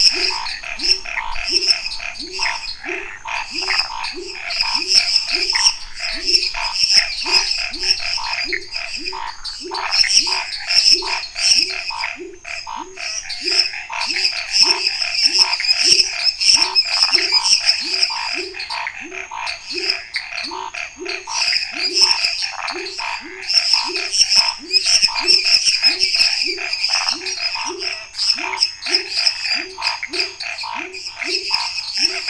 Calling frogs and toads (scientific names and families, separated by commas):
Boana raniceps (Hylidae), Pithecopus azureus (Hylidae), Scinax fuscovarius (Hylidae), Dendropsophus minutus (Hylidae), Leptodactylus labyrinthicus (Leptodactylidae), Phyllomedusa sauvagii (Hylidae)